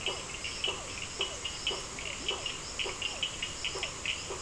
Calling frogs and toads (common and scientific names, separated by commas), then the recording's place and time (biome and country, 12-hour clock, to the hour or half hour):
Burmeister's tree frog (Boana prasina), Physalaemus cuvieri, Cochran's lime tree frog (Sphaenorhynchus surdus)
Atlantic Forest, Brazil, ~7pm